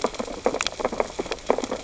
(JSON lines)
{"label": "biophony, sea urchins (Echinidae)", "recorder": "SoundTrap 600 or HydroMoth"}